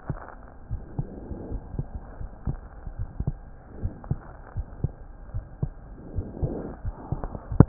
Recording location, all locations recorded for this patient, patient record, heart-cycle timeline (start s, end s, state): aortic valve (AV)
aortic valve (AV)+pulmonary valve (PV)+tricuspid valve (TV)+mitral valve (MV)
#Age: Child
#Sex: Male
#Height: 111.0 cm
#Weight: 17.8 kg
#Pregnancy status: False
#Murmur: Absent
#Murmur locations: nan
#Most audible location: nan
#Systolic murmur timing: nan
#Systolic murmur shape: nan
#Systolic murmur grading: nan
#Systolic murmur pitch: nan
#Systolic murmur quality: nan
#Diastolic murmur timing: nan
#Diastolic murmur shape: nan
#Diastolic murmur grading: nan
#Diastolic murmur pitch: nan
#Diastolic murmur quality: nan
#Outcome: Normal
#Campaign: 2015 screening campaign
0.00	0.68	unannotated
0.68	0.80	S1
0.80	0.96	systole
0.96	1.08	S2
1.08	1.49	diastole
1.49	1.62	S1
1.62	1.74	systole
1.74	1.86	S2
1.86	2.18	diastole
2.18	2.30	S1
2.30	2.45	systole
2.45	2.58	S2
2.58	2.96	diastole
2.96	3.10	S1
3.10	3.25	systole
3.25	3.38	S2
3.38	3.80	diastole
3.80	3.94	S1
3.94	4.06	systole
4.06	4.18	S2
4.18	4.53	diastole
4.53	4.66	S1
4.66	4.80	systole
4.80	4.94	S2
4.94	5.33	diastole
5.33	5.44	S1
5.44	5.59	systole
5.59	5.72	S2
5.72	6.14	diastole
6.14	6.25	S1
6.25	7.68	unannotated